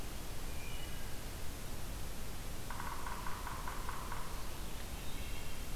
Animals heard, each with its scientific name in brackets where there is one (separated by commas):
Wood Thrush (Hylocichla mustelina), Yellow-bellied Sapsucker (Sphyrapicus varius)